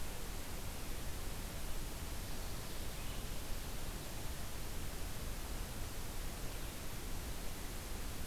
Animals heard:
forest ambience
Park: Marsh-Billings-Rockefeller National Historical Park